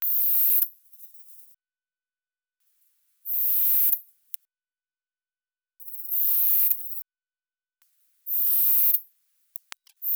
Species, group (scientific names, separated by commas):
Poecilimon sanctipauli, Orthoptera